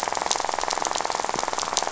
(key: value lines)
label: biophony, rattle
recorder: SoundTrap 500